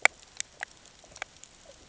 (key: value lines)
label: ambient
recorder: HydroMoth